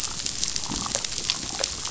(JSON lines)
{"label": "biophony", "recorder": "SoundTrap 500"}